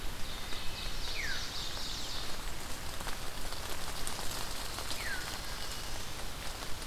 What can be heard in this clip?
Ovenbird, Wood Thrush, Blackburnian Warbler, Veery